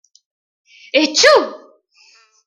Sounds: Sneeze